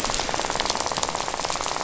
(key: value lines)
label: biophony, rattle
recorder: SoundTrap 500